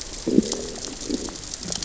{"label": "biophony, growl", "recorder": "SoundTrap 600 or HydroMoth"}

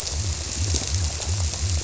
{"label": "biophony", "recorder": "SoundTrap 300"}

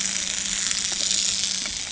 {"label": "anthrophony, boat engine", "recorder": "HydroMoth"}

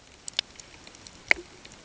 {"label": "ambient", "recorder": "HydroMoth"}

